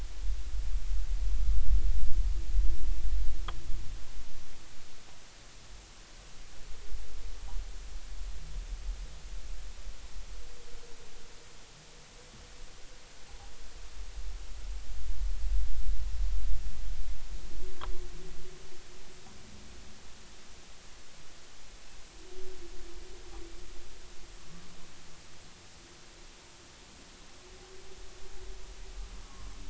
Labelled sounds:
29.2	29.5	humpback whale, 1.0 to 1.2 kHz

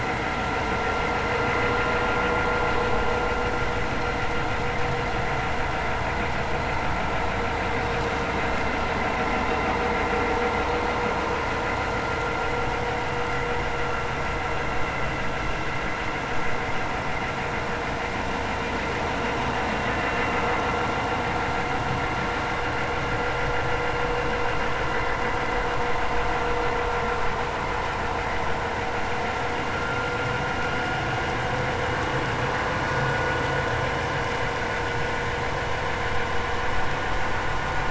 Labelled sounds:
29.7	30.1	vessel noise, 1.3 to 1.5 kHz

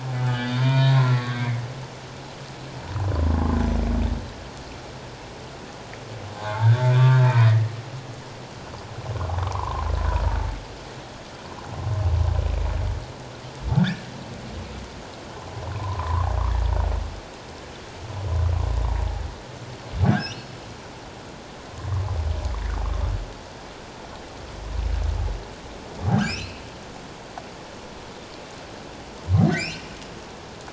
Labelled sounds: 0.2	1.6	humpback whale, 0.91 to 4.9 kHz
6.4	7.0	humpback whale, 0.78 to 1.8 kHz
9.3	9.8	humpback whale, 0.78 to 1.3 kHz
13.8	14.1	humpback whale, 1.4 to 1.9 kHz
15.7	16.3	humpback whale, 0.84 to 1.2 kHz
20.1	20.5	humpback whale, 1.4 to 3.0 kHz
26.2	26.6	humpback whale, 2.2 to 3.1 kHz
29.5	29.9	humpback whale, 1.8 to 3.0 kHz

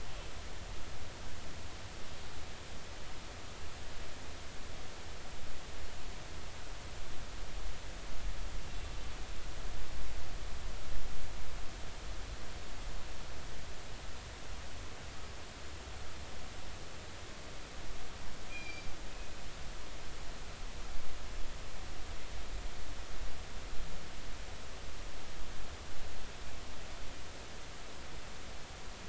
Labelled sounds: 8.7	8.9	killer whale, northern resident, A clan, call N03, 2.7 to 2.8 kHz
18.5	18.9	killer whale, northern resident, G clan, call N24ii, 2.2 to 5.7 kHz

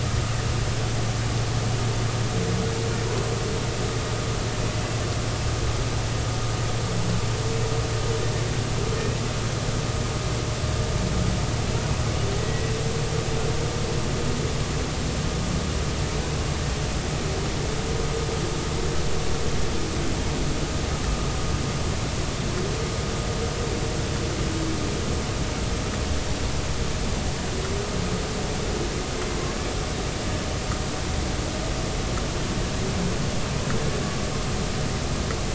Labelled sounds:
12.4	12.7	humpback whale, 1.9 to 2.0 kHz

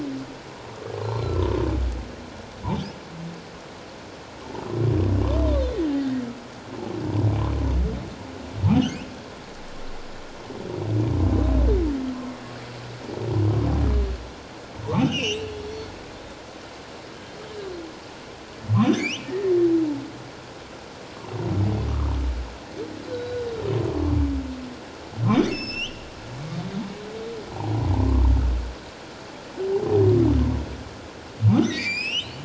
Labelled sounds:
1.2	1.4	humpback whale, 1.3 to 1.4 kHz
6.0	6.2	humpback whale, 1.8 to 2.0 kHz
8.7	9.0	humpback whale, 2.8 to 3.4 kHz
15.0	15.5	humpback whale, 2.3 to 6.4 kHz
17.2	17.5	humpback whale, 3.0 to 3.2 kHz
18.8	19.5	humpback whale, 1.8 to 6.3 kHz
23.1	23.5	humpback whale, 1.4 to 4.0 kHz
25.5	26.1	humpback whale, 2.5 to 8.0 kHz
27.9	28.3	humpback whale, 0.88 to 1.2 kHz
31.6	32.4	humpback whale, 1.8 to 7.9 kHz

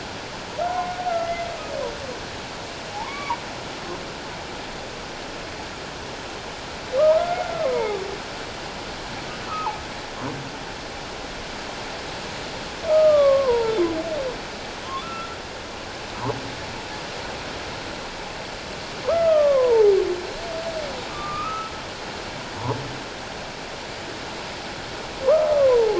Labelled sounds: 0.6	1.5	humpback whale, 0.94 to 2.1 kHz
2.9	3.4	humpback whale, 0.78 to 2.3 kHz
7.0	8.0	humpback whale, 0.78 to 2.3 kHz
12.9	13.8	humpback whale, 0.84 to 1.3 kHz
14.8	15.3	humpback whale, 1.0 to 1.4 kHz
19.0	19.9	humpback whale, 0.78 to 2.1 kHz
21.1	21.7	humpback whale, 1.1 to 1.4 kHz
25.2	25.9	humpback whale, 0.78 to 1.3 kHz

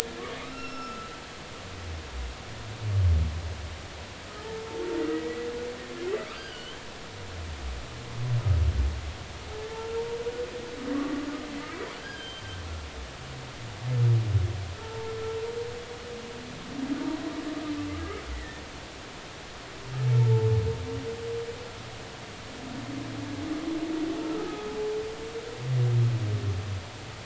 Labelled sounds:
0.4	1.1	humpback whale, 1.1 to 5.5 kHz
5.1	5.5	humpback whale, 1.9 to 2.0 kHz
6.3	6.8	humpback whale, 1.4 to 4.9 kHz
9.7	10.0	humpback whale, 1.3 to 1.5 kHz
12.0	12.6	humpback whale, 1.5 to 6.3 kHz
14.8	15.1	humpback whale, 0.86 to 0.96 kHz
18.3	18.6	humpback whale, 1.7 to 2.0 kHz
20.2	20.5	humpback whale, 0.83 to 0.96 kHz
24.2	24.7	humpback whale, 1.2 to 1.4 kHz

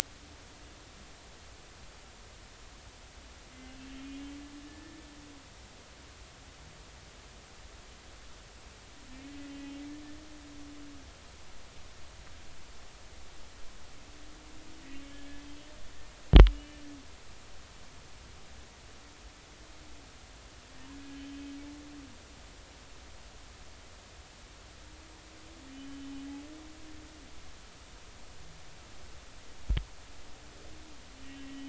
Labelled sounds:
3.8	4.9	humpback whale, 1.7 to 2.8 kHz
14.9	15.2	humpback whale, 3.0 to 3.2 kHz
16.5	16.8	humpback whale, 2.8 to 3.0 kHz
21.1	21.4	humpback whale, 3.0 to 3.2 kHz
25.7	26.1	humpback whale, 2.9 to 3.1 kHz
31.2	31.6	humpback whale, 1.9 to 2.8 kHz

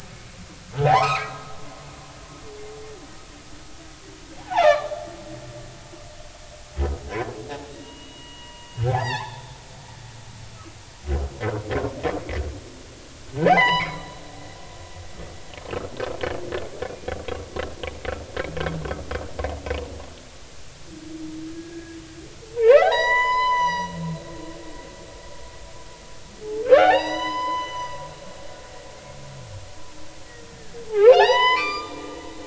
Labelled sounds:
1.0	1.3	humpback whale, 1.9 to 2.6 kHz
4.4	4.9	humpback whale, 0.80 to 2.5 kHz
7.7	9.4	humpback whale, 0.80 to 3.9 kHz
10.0	10.3	humpback whale, 4.2 to 4.9 kHz
11.4	11.7	humpback whale, 1.3 to 1.6 kHz
13.4	14.0	humpback whale, 0.80 to 5.1 kHz
21.5	22.0	humpback whale, 1.5 to 1.7 kHz
22.6	23.9	humpback whale, 0.80 to 7.0 kHz
26.6	27.9	humpback whale, 0.80 to 6.1 kHz
30.9	32.0	humpback whale, 0.80 to 7.3 kHz

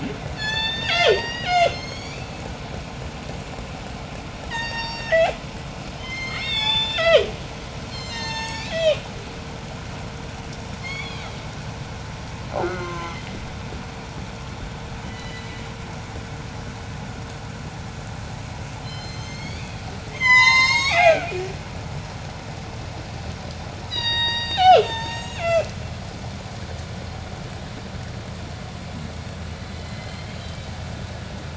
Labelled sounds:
0.0	2.7	killer whale, J pod, 0.28 to 8.0 kHz
4.3	5.5	killer whale, J pod, call S03, 0.46 to 8.0 kHz
5.8	9.2	killer whale, J pod, 0.29 to 8.0 kHz
10.6	11.6	killer whale, J pod, 0.98 to 8.0 kHz
12.3	13.5	killer whale, J pod, call S04, 0.16 to 4.5 kHz
15.0	15.9	killer whale, J pod, 1.7 to 5.3 kHz
18.7	20.0	killer whale, J pod, call S01, 1.8 to 8.0 kHz
20.0	21.7	killer whale, J pod, 0.16 to 8.0 kHz
23.7	25.9	killer whale, J pod, call S03, 0.21 to 8.0 kHz
29.3	31.2	killer whale, J pod, 1.6 to 4.6 kHz

